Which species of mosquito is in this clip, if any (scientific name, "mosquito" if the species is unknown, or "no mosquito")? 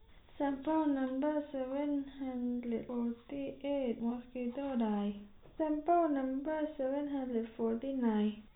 no mosquito